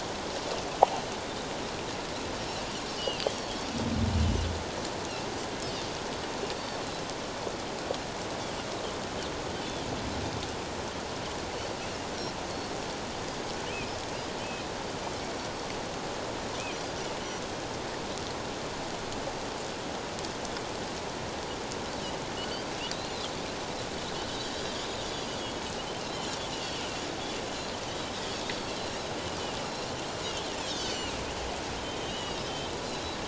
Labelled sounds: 3.0	3.2	Pacific white-sided dolphin, 2.6 to 3.2 kHz
22.9	23.3	Pacific white-sided dolphin, 3.7 to 4.3 kHz
26.0	26.4	Pacific white-sided dolphin, 3.0 to 4.2 kHz
29.6	29.9	Pacific white-sided dolphin, 5.4 to 5.6 kHz
30.8	32.5	Pacific white-sided dolphin, 2.6 to 6.1 kHz

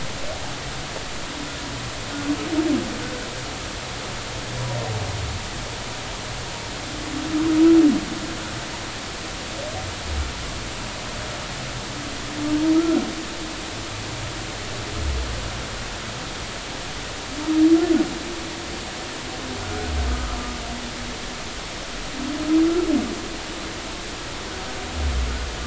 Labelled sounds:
12.7	13.0	humpback whale, 1.2 to 1.5 kHz
19.6	20.6	humpback whale, 1.2 to 1.5 kHz

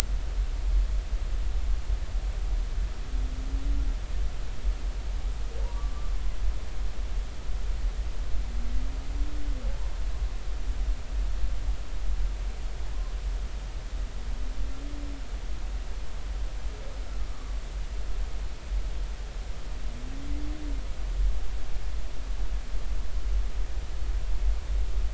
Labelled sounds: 5.7	6.1	humpback whale, 1.1 to 1.2 kHz

